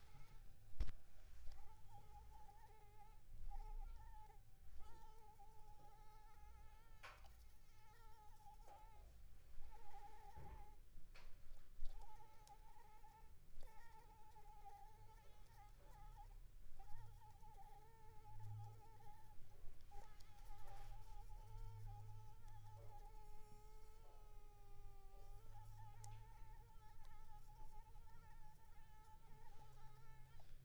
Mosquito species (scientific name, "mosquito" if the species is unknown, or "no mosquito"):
Anopheles arabiensis